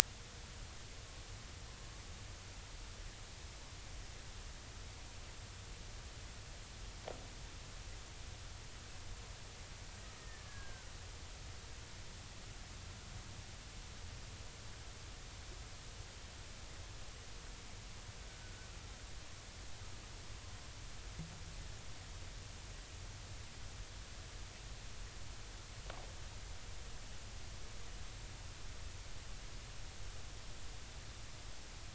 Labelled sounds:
10.2	10.9	killer whale, Bigg's (transient), 1.1 to 1.9 kHz
18.3	18.7	killer whale, Bigg's (transient), 1.4 to 1.6 kHz

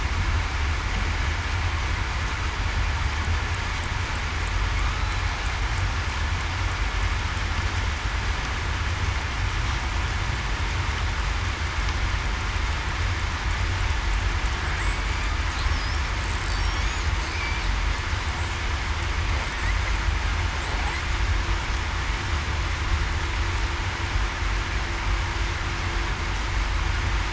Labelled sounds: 14.9	15.2	killer whale, southern resident, 7.6 to 8.0 kHz

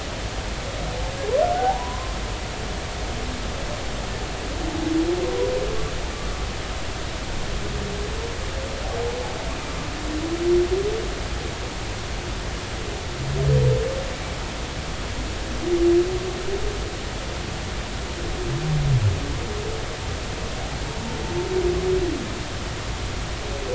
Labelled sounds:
1.6	2.1	humpback whale, 0.80 to 1.1 kHz

